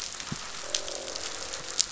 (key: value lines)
label: biophony, croak
recorder: SoundTrap 500